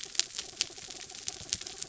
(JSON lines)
{"label": "anthrophony, mechanical", "recorder": "SoundTrap 300"}